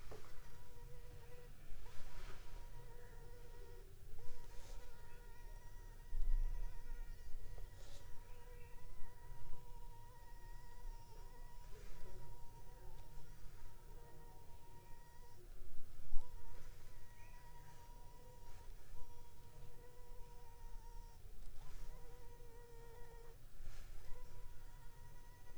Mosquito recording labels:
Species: Anopheles funestus s.s.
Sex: female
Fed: unfed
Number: one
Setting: cup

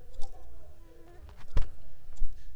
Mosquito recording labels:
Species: Mansonia uniformis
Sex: female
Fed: unfed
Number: one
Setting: cup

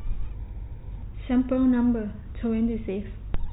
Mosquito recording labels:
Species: no mosquito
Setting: cup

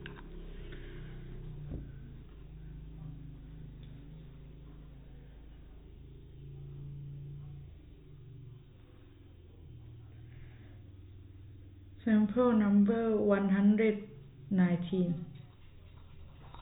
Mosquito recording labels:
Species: no mosquito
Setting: cup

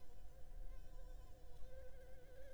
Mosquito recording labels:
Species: Anopheles gambiae s.l.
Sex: female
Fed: unfed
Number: one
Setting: cup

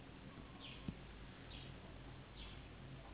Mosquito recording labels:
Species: Anopheles gambiae s.s.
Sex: female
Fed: unfed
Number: one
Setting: insect culture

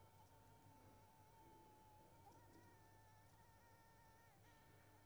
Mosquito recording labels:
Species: Anopheles squamosus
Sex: female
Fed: unfed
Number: one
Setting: cup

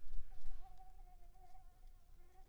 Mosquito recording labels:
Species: Anopheles coustani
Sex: female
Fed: unfed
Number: one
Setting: cup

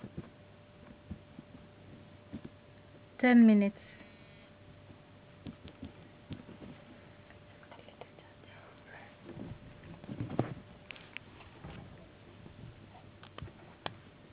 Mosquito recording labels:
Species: no mosquito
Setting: insect culture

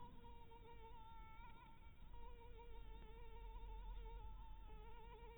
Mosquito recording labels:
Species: Anopheles harrisoni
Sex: female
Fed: blood-fed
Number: one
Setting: cup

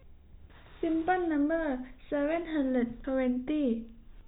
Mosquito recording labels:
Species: no mosquito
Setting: cup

